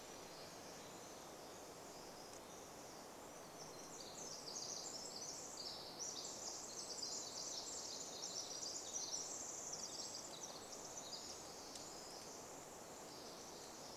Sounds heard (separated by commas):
Pacific Wren song